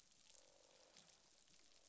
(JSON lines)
{"label": "biophony, croak", "recorder": "SoundTrap 500"}